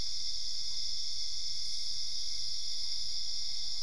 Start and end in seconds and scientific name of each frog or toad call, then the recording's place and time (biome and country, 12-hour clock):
none
Cerrado, Brazil, 11:00pm